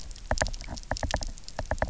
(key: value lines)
label: biophony, knock
recorder: SoundTrap 300